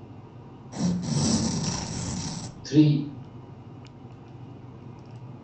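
A continuous noise lies about 20 dB below the sounds. First at 0.71 seconds, there is tearing. Then at 2.65 seconds, a voice says "three."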